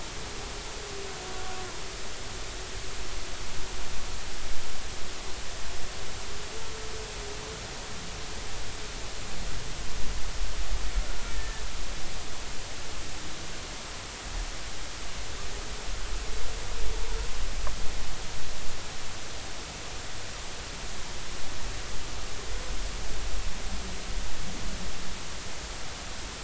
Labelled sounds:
11.3	11.6	humpback whale, 1.7 to 1.9 kHz

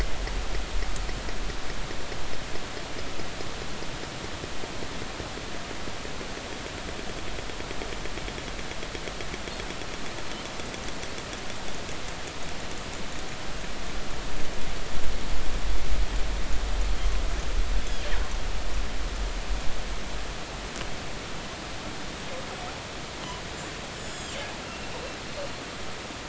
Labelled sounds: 23.9	24.3	killer whale, northern resident, G clan, call N25, 4.7 to 8.0 kHz

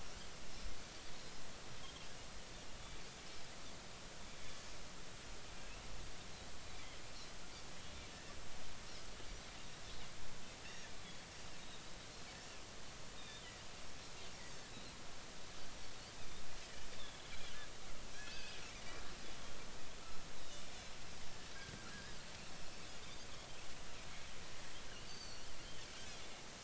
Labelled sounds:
13.2	13.4	Pacific white-sided dolphin, 3.4 to 3.8 kHz
18.1	18.6	Pacific white-sided dolphin, 2.3 to 2.8 kHz
20.4	20.7	Pacific white-sided dolphin, 3.5 to 4.0 kHz
21.9	22.1	Pacific white-sided dolphin, 1.5 to 1.8 kHz
24.9	25.5	Pacific white-sided dolphin, 2.7 to 6.2 kHz

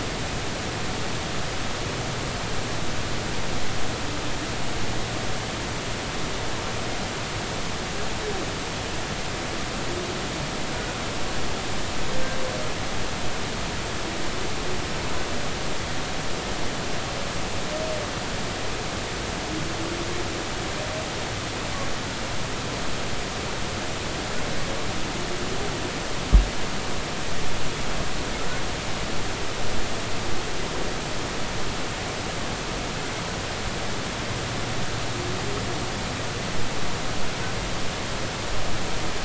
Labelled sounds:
10.8	11.0	humpback whale, 1.3 to 1.5 kHz

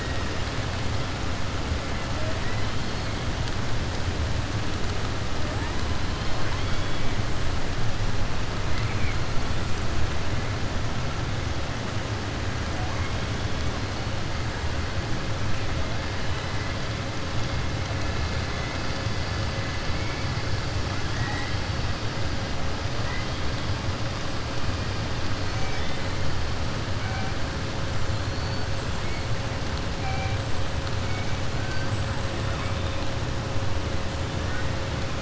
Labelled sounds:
8.7	9.2	killer whale, southern resident, 1.3 to 3.6 kHz
21.1	21.7	killer whale, southern resident, 0.72 to 8.0 kHz
31.8	32.3	killer whale, southern resident, 7.6 to 8.0 kHz

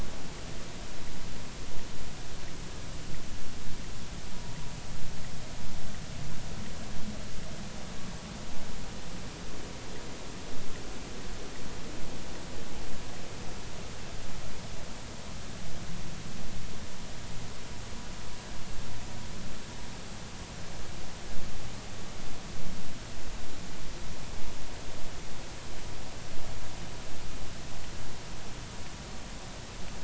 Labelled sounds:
4.3	4.6	vessel noise, 0.86 to 0.99 kHz

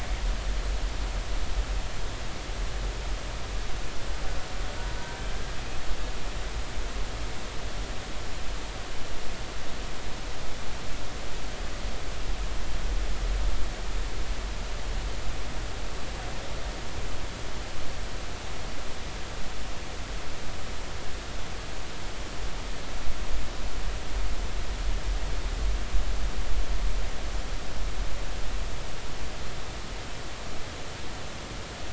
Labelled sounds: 5.0	5.2	killer whale, Bigg's (transient), 1.5 to 1.6 kHz

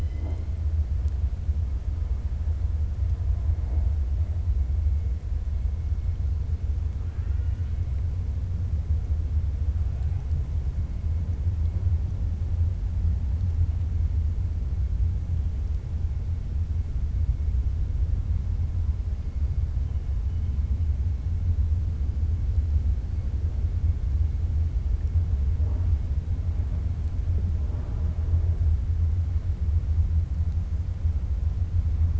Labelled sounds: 7.0	7.7	killer whale, 1.1 to 3.4 kHz

